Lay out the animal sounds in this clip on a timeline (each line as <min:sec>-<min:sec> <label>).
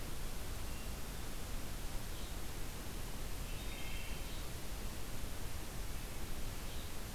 0:00.0-0:07.1 Red-eyed Vireo (Vireo olivaceus)
0:03.4-0:04.5 Wood Thrush (Hylocichla mustelina)